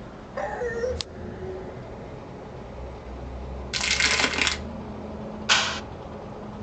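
At 0.33 seconds, a dog can be heard. Afterwards, at 3.7 seconds, crackling is audible. Finally, at 5.49 seconds, someone claps. A soft noise continues about 15 dB below the sounds.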